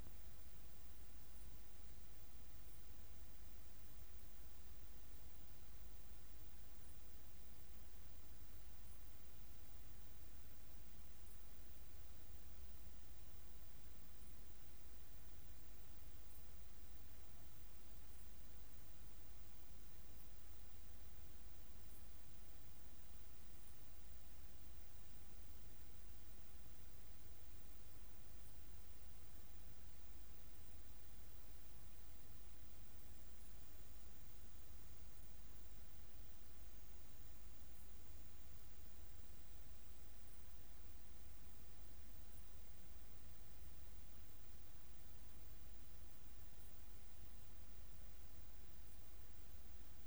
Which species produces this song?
Leptophyes punctatissima